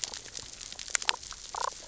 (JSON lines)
{"label": "biophony, damselfish", "recorder": "SoundTrap 600 or HydroMoth"}